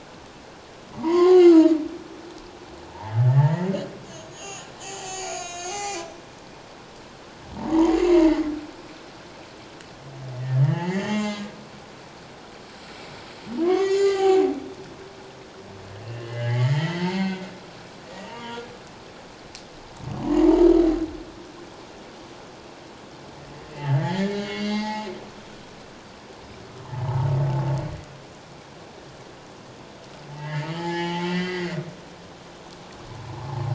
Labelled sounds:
0.9	1.8	humpback whale, 0.88 to 2.2 kHz
3.2	6.3	humpback whale, 0.78 to 8.0 kHz
7.7	8.4	humpback whale, 0.81 to 2.2 kHz
10.4	11.6	humpback whale, 0.78 to 7.3 kHz
13.6	14.5	humpback whale, 0.78 to 7.2 kHz
16.0	17.5	humpback whale, 0.81 to 4.6 kHz
18.3	18.7	humpback whale, 0.88 to 3.4 kHz
23.8	25.1	humpback whale, 0.78 to 6.5 kHz
27.0	27.3	humpback whale, 0.81 to 1.1 kHz
30.4	31.8	humpback whale, 0.81 to 5.2 kHz

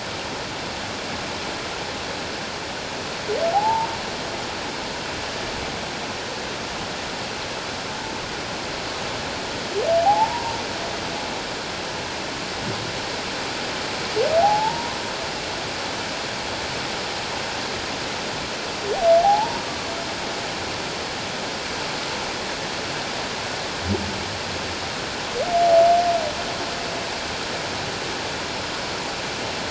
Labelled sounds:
3.5	3.9	humpback whale, 0.78 to 0.97 kHz
10.0	10.6	humpback whale, 0.78 to 1.1 kHz
14.4	15.0	humpback whale, 0.78 to 1.1 kHz
19.2	19.9	humpback whale, 0.78 to 1.2 kHz

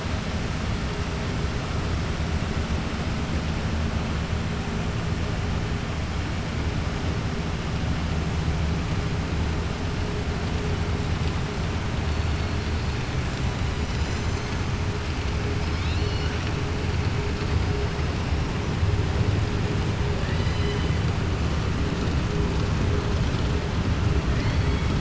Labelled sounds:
15.6	16.5	killer whale, 2.2 to 5.9 kHz
20.2	20.9	killer whale, 1.8 to 5.1 kHz

